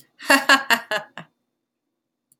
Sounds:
Laughter